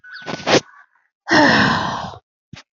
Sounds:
Sigh